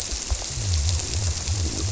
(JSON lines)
{"label": "biophony", "recorder": "SoundTrap 300"}